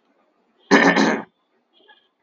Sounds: Throat clearing